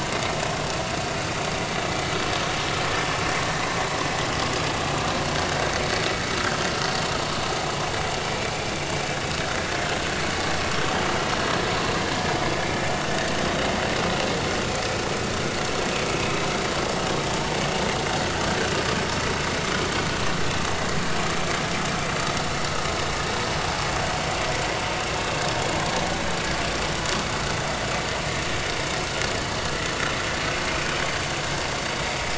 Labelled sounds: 8.2	8.5	vessel noise, 2.2 to 2.5 kHz
12.6	12.8	vessel noise, 2.3 to 2.4 kHz

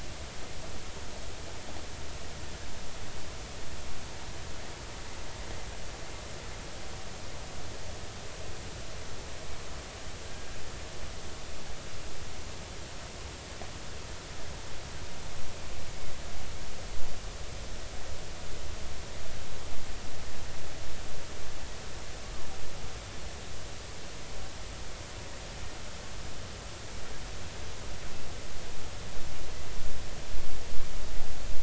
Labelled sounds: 10.3	10.6	killer whale, 1.6 to 1.7 kHz
15.9	16.1	killer whale, 2.0 to 2.3 kHz

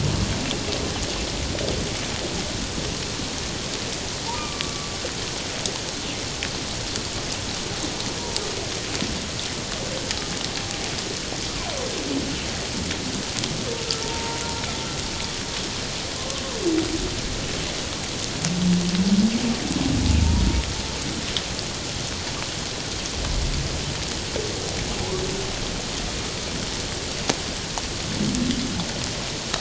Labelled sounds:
4.3	4.9	humpback whale, 1.1 to 1.2 kHz
14.0	14.4	humpback whale, 0.88 to 0.97 kHz
16.2	16.4	humpback whale, 0.97 to 1.2 kHz

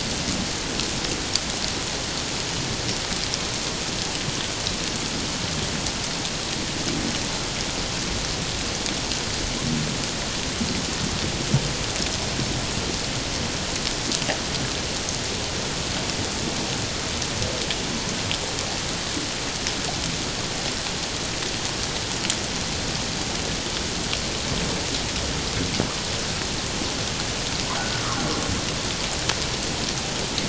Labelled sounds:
27.8	28.1	humpback whale, 1.4 to 1.5 kHz

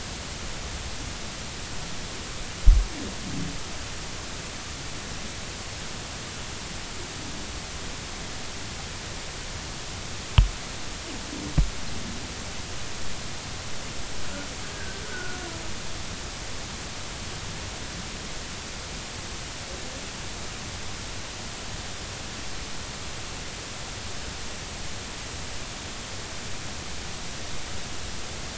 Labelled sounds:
14.7	15.4	humpback whale, 1.4 to 1.7 kHz

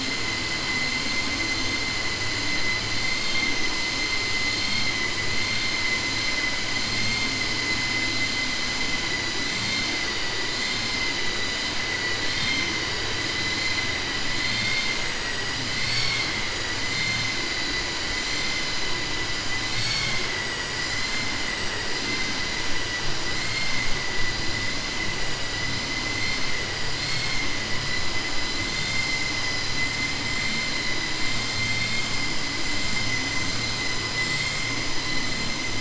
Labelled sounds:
31.6	32.1	vessel noise, 1.7 to 4.5 kHz

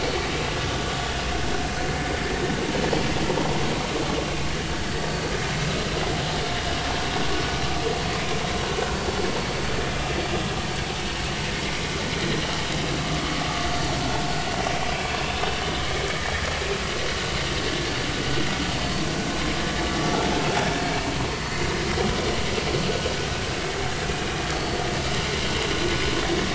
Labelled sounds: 24.5	24.8	vessel noise, 4.2 to 4.5 kHz

